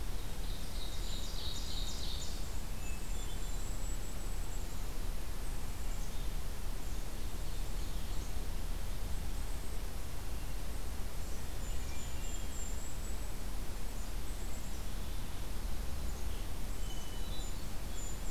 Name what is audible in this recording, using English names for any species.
Ovenbird, Golden-crowned Kinglet, Hermit Thrush, Black-capped Chickadee